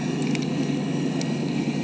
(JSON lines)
{"label": "anthrophony, boat engine", "recorder": "HydroMoth"}